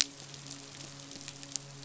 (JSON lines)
{"label": "biophony, midshipman", "recorder": "SoundTrap 500"}